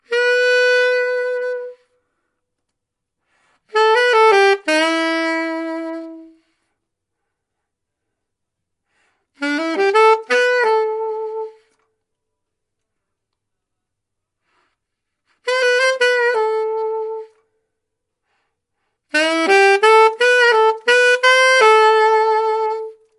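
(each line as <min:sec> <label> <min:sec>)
0:00.1 A saxophone is being played. 0:01.8
0:03.7 A saxophone is being played. 0:06.3
0:09.4 A saxophone is being played. 0:11.6
0:14.1 A saxophone player breathes in. 0:15.5
0:15.5 A saxophone is being played. 0:17.3
0:19.2 A saxophone is being played. 0:23.0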